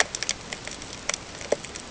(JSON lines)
{"label": "ambient", "recorder": "HydroMoth"}